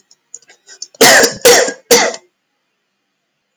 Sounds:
Cough